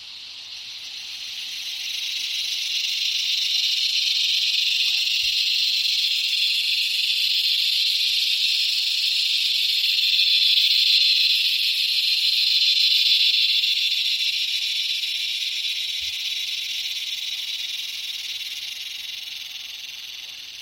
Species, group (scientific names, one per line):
Henicopsaltria eydouxii
Cicadidae